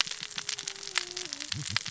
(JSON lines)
{"label": "biophony, cascading saw", "recorder": "SoundTrap 600 or HydroMoth"}